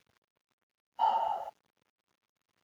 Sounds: Sigh